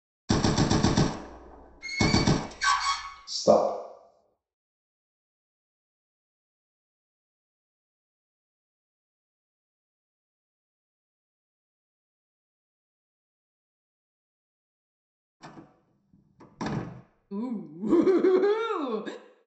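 At the start, gunfire can be heard. Over it, about 2 seconds in, you can hear the sound of a door. Then, about 3 seconds in, a voice says "Stop." After that, about 15 seconds in, quiet slamming is audible. Next, about 17 seconds in, someone laughs.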